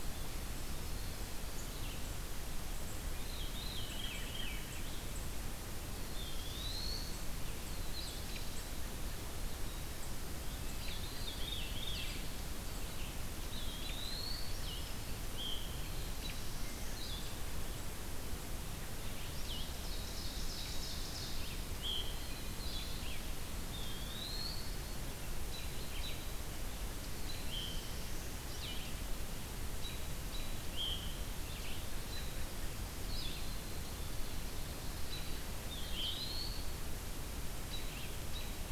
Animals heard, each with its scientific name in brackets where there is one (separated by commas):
Red-eyed Vireo (Vireo olivaceus), Golden-crowned Kinglet (Regulus satrapa), Eastern Wood-Pewee (Contopus virens), Blue-headed Vireo (Vireo solitarius), Veery (Catharus fuscescens), Ovenbird (Seiurus aurocapilla), Black-throated Blue Warbler (Setophaga caerulescens)